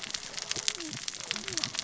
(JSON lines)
{"label": "biophony, cascading saw", "recorder": "SoundTrap 600 or HydroMoth"}